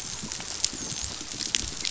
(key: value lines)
label: biophony, dolphin
recorder: SoundTrap 500